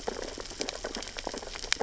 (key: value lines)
label: biophony, sea urchins (Echinidae)
recorder: SoundTrap 600 or HydroMoth